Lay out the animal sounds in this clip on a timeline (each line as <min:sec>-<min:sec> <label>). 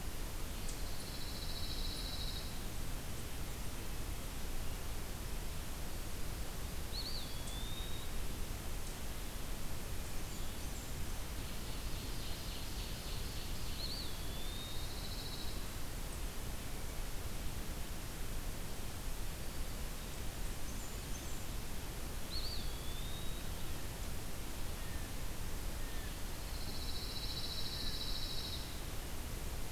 0:00.8-0:02.5 Pine Warbler (Setophaga pinus)
0:06.8-0:08.2 Eastern Wood-Pewee (Contopus virens)
0:09.9-0:11.2 Blackburnian Warbler (Setophaga fusca)
0:11.3-0:13.8 Ovenbird (Seiurus aurocapilla)
0:13.6-0:14.9 Eastern Wood-Pewee (Contopus virens)
0:14.3-0:15.6 Pine Warbler (Setophaga pinus)
0:20.1-0:21.5 Blackburnian Warbler (Setophaga fusca)
0:22.2-0:23.4 Eastern Wood-Pewee (Contopus virens)
0:26.2-0:28.7 Pine Warbler (Setophaga pinus)